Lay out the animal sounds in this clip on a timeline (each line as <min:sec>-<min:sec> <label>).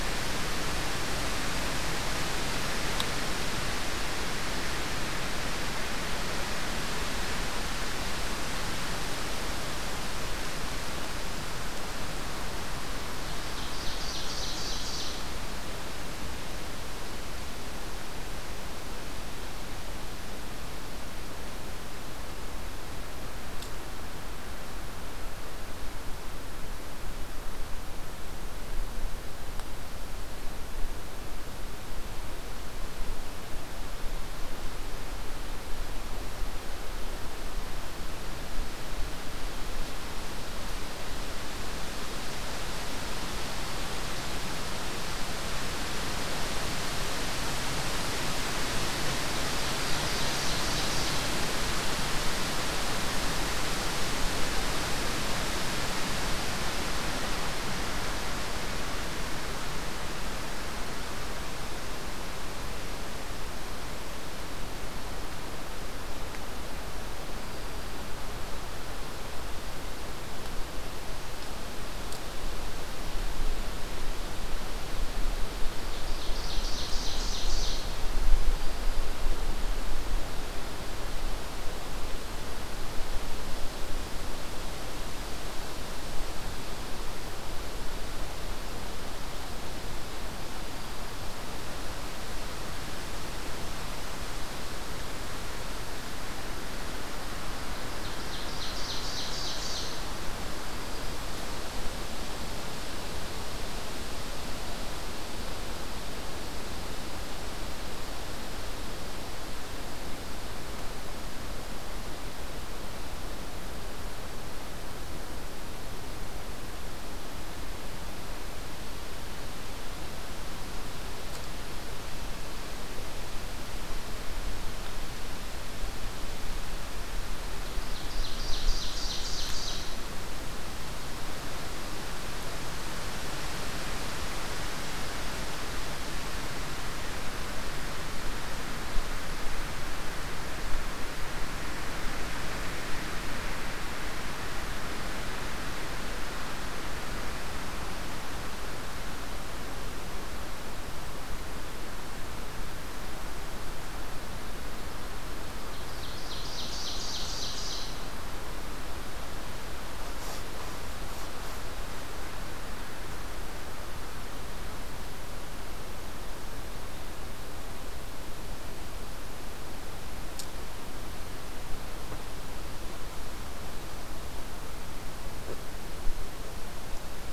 0:13.0-0:15.3 Ovenbird (Seiurus aurocapilla)
0:49.5-0:51.3 Ovenbird (Seiurus aurocapilla)
1:15.8-1:18.0 Ovenbird (Seiurus aurocapilla)
1:37.8-1:40.2 Ovenbird (Seiurus aurocapilla)
2:07.8-2:10.0 Ovenbird (Seiurus aurocapilla)
2:35.6-2:38.1 Ovenbird (Seiurus aurocapilla)